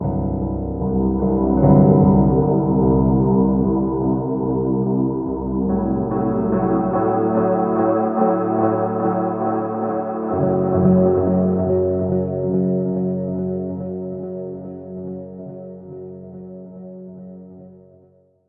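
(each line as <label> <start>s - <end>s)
A dark and rhythmic piece of music played on a single piano. 0.0s - 18.5s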